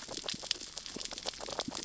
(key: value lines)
label: biophony, sea urchins (Echinidae)
recorder: SoundTrap 600 or HydroMoth